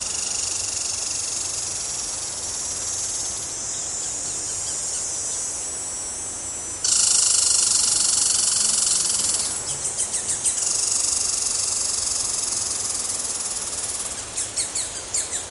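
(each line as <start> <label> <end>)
0.1 Crackling sounds. 15.4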